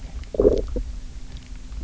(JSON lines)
{"label": "biophony, low growl", "recorder": "SoundTrap 300"}